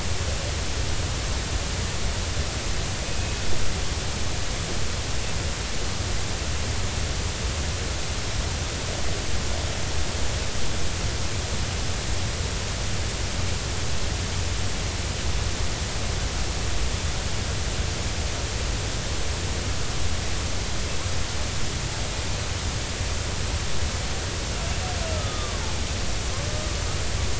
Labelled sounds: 3.0	3.4	killer whale, Bigg's (transient), 2.5 to 2.6 kHz
25.1	25.6	killer whale, Bigg's (transient), 1.1 to 1.4 kHz

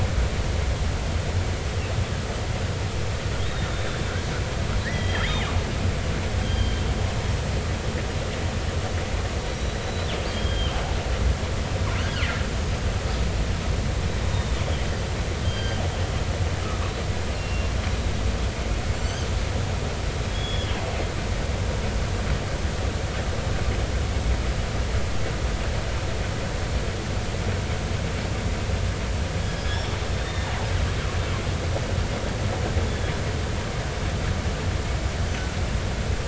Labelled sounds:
3.4	4.0	killer whale, northern resident, 3.5 to 3.8 kHz
4.8	5.4	killer whale, northern resident, 1.6 to 3.4 kHz
6.4	6.8	killer whale, northern resident, 3.1 to 4.8 kHz
9.5	10.8	killer whale, northern resident, 2.8 to 4.0 kHz
12.0	12.4	killer whale, northern resident, 1.3 to 3.2 kHz
14.3	14.6	killer whale, northern resident, 3.6 to 3.8 kHz
15.4	15.8	killer whale, northern resident, 1.5 to 4.8 kHz
17.3	17.7	killer whale, northern resident, 2.6 to 2.8 kHz
19.0	19.3	killer whale, northern resident, 2.9 to 6.5 kHz
20.3	20.8	killer whale, northern resident, 3.1 to 3.6 kHz
29.6	30.5	killer whale, northern resident, 3.3 to 5.6 kHz

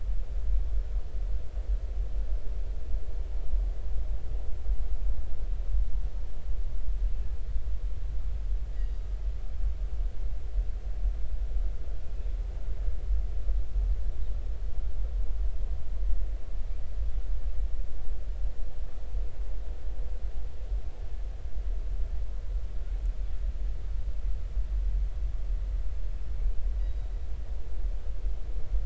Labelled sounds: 8.7	9.0	killer whale, northern resident, 4.7 to 5.0 kHz
26.8	27.1	killer whale, northern resident, 3.8 to 3.9 kHz

